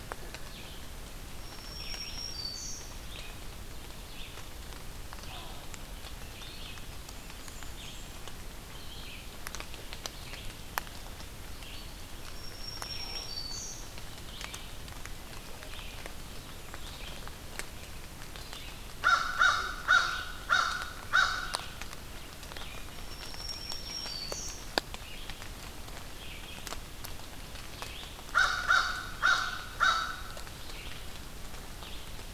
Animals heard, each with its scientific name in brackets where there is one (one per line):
Red-eyed Vireo (Vireo olivaceus)
Black-throated Green Warbler (Setophaga virens)
Blackburnian Warbler (Setophaga fusca)
American Crow (Corvus brachyrhynchos)